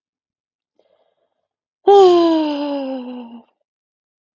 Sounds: Sigh